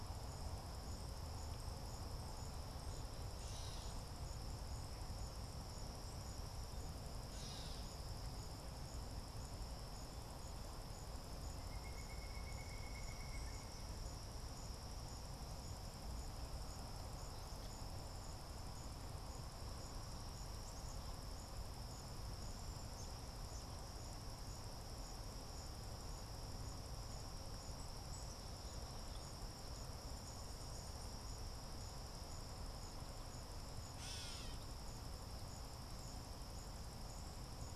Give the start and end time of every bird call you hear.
0.0s-8.0s: Gray Catbird (Dumetella carolinensis)
11.6s-13.9s: Pileated Woodpecker (Dryocopus pileatus)
33.9s-34.8s: Gray Catbird (Dumetella carolinensis)

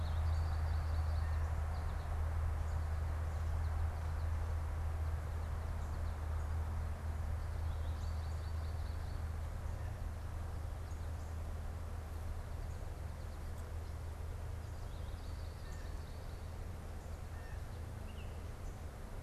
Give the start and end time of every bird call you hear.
0.0s-9.7s: American Goldfinch (Spinus tristis)
0.9s-11.3s: Northern Cardinal (Cardinalis cardinalis)
14.4s-16.9s: American Goldfinch (Spinus tristis)
15.5s-17.9s: Blue Jay (Cyanocitta cristata)
18.0s-18.4s: Baltimore Oriole (Icterus galbula)

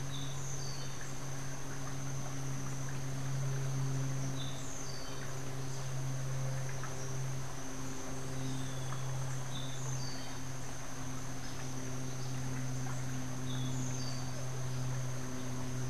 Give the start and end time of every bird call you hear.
0.0s-1.0s: Orange-billed Nightingale-Thrush (Catharus aurantiirostris)
4.2s-5.2s: Orange-billed Nightingale-Thrush (Catharus aurantiirostris)
9.3s-10.3s: Orange-billed Nightingale-Thrush (Catharus aurantiirostris)
13.4s-14.4s: Orange-billed Nightingale-Thrush (Catharus aurantiirostris)

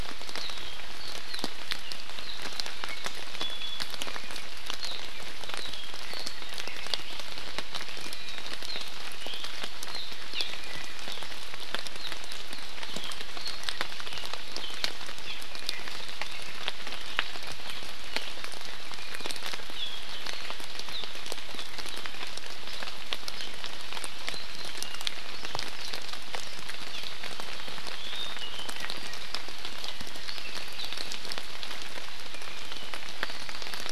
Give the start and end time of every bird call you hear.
2.8s-3.9s: Iiwi (Drepanis coccinea)
5.6s-7.2s: Apapane (Himatione sanguinea)
10.3s-10.5s: Hawaii Amakihi (Chlorodrepanis virens)
15.3s-15.4s: Hawaii Amakihi (Chlorodrepanis virens)
26.9s-27.1s: Hawaii Amakihi (Chlorodrepanis virens)
28.0s-29.2s: Apapane (Himatione sanguinea)
30.3s-31.1s: Apapane (Himatione sanguinea)

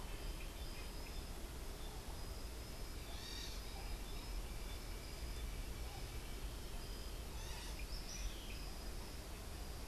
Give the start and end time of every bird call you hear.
3.0s-3.7s: unidentified bird
7.2s-8.0s: unidentified bird
7.8s-8.6s: Tropical Kingbird (Tyrannus melancholicus)

